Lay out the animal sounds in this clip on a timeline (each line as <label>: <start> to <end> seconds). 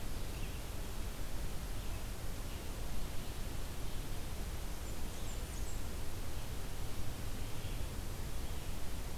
Red-eyed Vireo (Vireo olivaceus): 0.0 to 9.2 seconds
Blackburnian Warbler (Setophaga fusca): 4.7 to 6.1 seconds